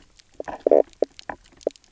{"label": "biophony, knock croak", "recorder": "SoundTrap 300"}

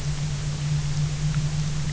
{"label": "anthrophony, boat engine", "recorder": "SoundTrap 300"}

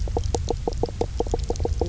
{"label": "biophony, knock croak", "recorder": "SoundTrap 300"}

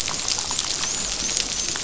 {"label": "biophony, dolphin", "recorder": "SoundTrap 500"}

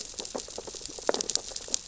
{"label": "biophony, sea urchins (Echinidae)", "recorder": "SoundTrap 600 or HydroMoth"}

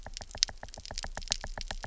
{"label": "biophony, knock", "recorder": "SoundTrap 300"}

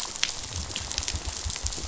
{"label": "biophony", "recorder": "SoundTrap 500"}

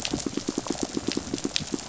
{"label": "biophony, pulse", "recorder": "SoundTrap 500"}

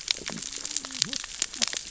{"label": "biophony, cascading saw", "recorder": "SoundTrap 600 or HydroMoth"}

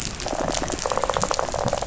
{"label": "biophony, rattle", "recorder": "SoundTrap 500"}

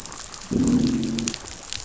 {"label": "biophony, growl", "recorder": "SoundTrap 500"}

